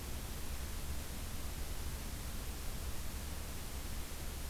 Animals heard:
forest ambience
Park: Acadia National Park